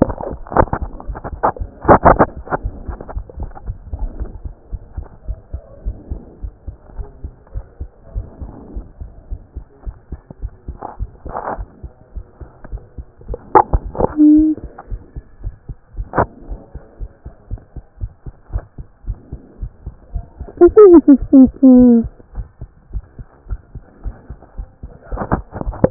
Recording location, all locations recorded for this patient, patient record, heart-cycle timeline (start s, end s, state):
pulmonary valve (PV)
aortic valve (AV)+pulmonary valve (PV)+tricuspid valve (TV)+mitral valve (MV)
#Age: Child
#Sex: Male
#Height: 124.0 cm
#Weight: 25.8 kg
#Pregnancy status: False
#Murmur: Present
#Murmur locations: mitral valve (MV)+tricuspid valve (TV)
#Most audible location: tricuspid valve (TV)
#Systolic murmur timing: Early-systolic
#Systolic murmur shape: Plateau
#Systolic murmur grading: I/VI
#Systolic murmur pitch: Low
#Systolic murmur quality: Harsh
#Diastolic murmur timing: nan
#Diastolic murmur shape: nan
#Diastolic murmur grading: nan
#Diastolic murmur pitch: nan
#Diastolic murmur quality: nan
#Outcome: Normal
#Campaign: 2014 screening campaign
0.00	5.17	unannotated
5.17	5.26	diastole
5.26	5.38	S1
5.38	5.52	systole
5.52	5.60	S2
5.60	5.84	diastole
5.84	5.96	S1
5.96	6.10	systole
6.10	6.20	S2
6.20	6.42	diastole
6.42	6.52	S1
6.52	6.68	systole
6.68	6.76	S2
6.76	6.96	diastole
6.96	7.08	S1
7.08	7.24	systole
7.24	7.32	S2
7.32	7.54	diastole
7.54	7.64	S1
7.64	7.80	systole
7.80	7.90	S2
7.90	8.14	diastole
8.14	8.26	S1
8.26	8.42	systole
8.42	8.52	S2
8.52	8.74	diastole
8.74	8.86	S1
8.86	9.00	systole
9.00	9.10	S2
9.10	9.30	diastole
9.30	9.40	S1
9.40	9.56	systole
9.56	9.66	S2
9.66	9.86	diastole
9.86	9.96	S1
9.96	10.10	systole
10.10	10.20	S2
10.20	10.42	diastole
10.42	10.52	S1
10.52	10.68	systole
10.68	10.78	S2
10.78	11.00	diastole
11.00	11.10	S1
11.10	11.26	systole
11.26	11.36	S2
11.36	11.56	diastole
11.56	11.68	S1
11.68	11.82	systole
11.82	11.92	S2
11.92	12.14	diastole
12.14	12.24	S1
12.24	12.40	systole
12.40	12.50	S2
12.50	12.70	diastole
12.70	12.82	S1
12.82	12.98	systole
12.98	13.08	S2
13.08	13.30	diastole
13.30	25.90	unannotated